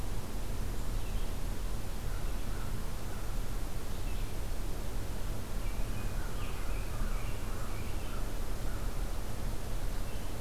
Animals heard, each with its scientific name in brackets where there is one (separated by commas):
Red-eyed Vireo (Vireo olivaceus), American Crow (Corvus brachyrhynchos), American Robin (Turdus migratorius)